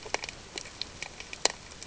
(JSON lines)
{"label": "ambient", "recorder": "HydroMoth"}